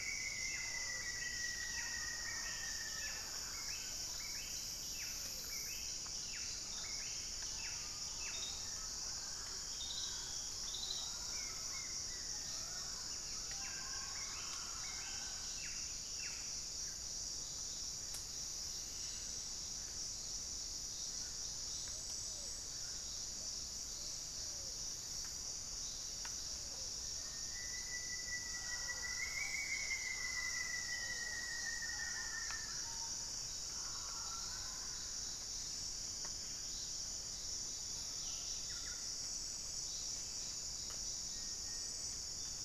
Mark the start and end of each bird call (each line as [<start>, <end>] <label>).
[0.00, 3.98] Rufous-fronted Antthrush (Formicarius rufifrons)
[0.00, 6.68] Pale-vented Pigeon (Patagioenas cayennensis)
[0.00, 17.58] Buff-breasted Wren (Cantorchilus leucotis)
[0.38, 16.58] Mealy Parrot (Amazona farinosa)
[7.68, 13.08] Gilded Barbet (Capito auratus)
[11.18, 13.08] White-flanked Antwren (Myrmotherula axillaris)
[11.98, 13.18] Pygmy Antwren (Myrmotherula brachyura)
[19.88, 33.68] Plumbeous Pigeon (Patagioenas plumbea)
[26.98, 32.88] Rufous-fronted Antthrush (Formicarius rufifrons)
[28.28, 35.78] Mealy Parrot (Amazona farinosa)
[34.78, 38.08] Barred Antshrike (Thamnophilus doliatus)
[38.08, 39.58] Buff-breasted Wren (Cantorchilus leucotis)
[41.08, 42.18] Cinereous Tinamou (Crypturellus cinereus)